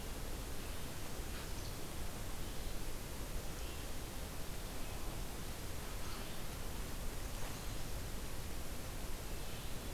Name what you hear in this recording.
Red-eyed Vireo